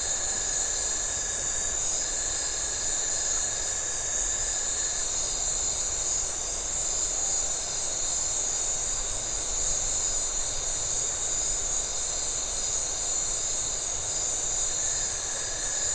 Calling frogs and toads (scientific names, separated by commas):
Phyllomedusa distincta